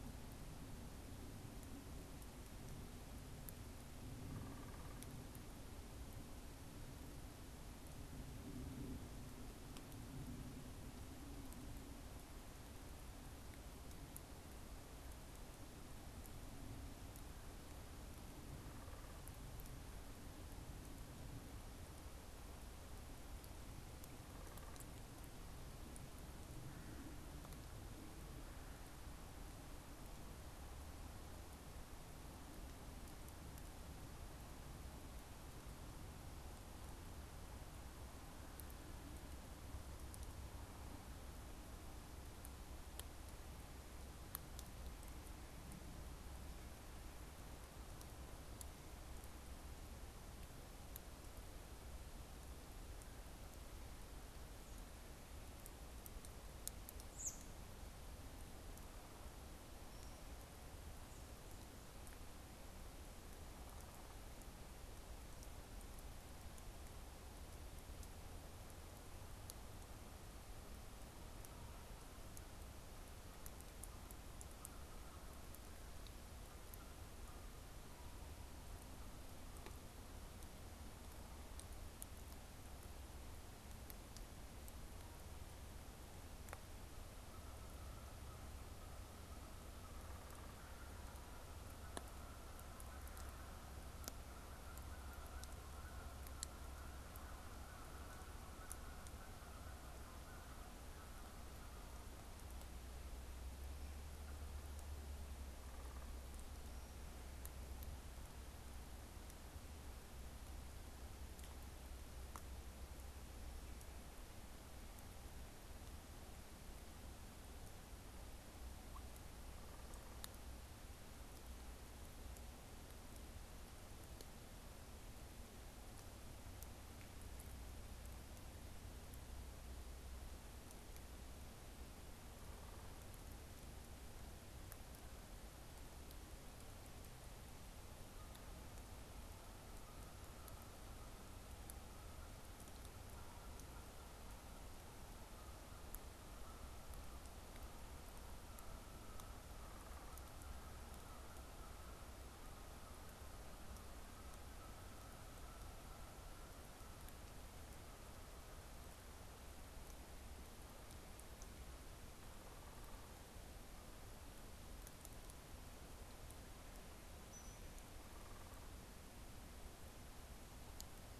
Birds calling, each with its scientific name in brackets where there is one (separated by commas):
Downy Woodpecker (Dryobates pubescens), American Robin (Turdus migratorius), Canada Goose (Branta canadensis)